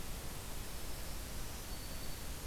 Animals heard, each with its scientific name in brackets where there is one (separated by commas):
Black-throated Green Warbler (Setophaga virens)